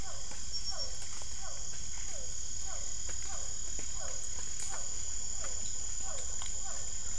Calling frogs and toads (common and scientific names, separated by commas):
Physalaemus cuvieri